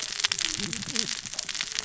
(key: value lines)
label: biophony, cascading saw
recorder: SoundTrap 600 or HydroMoth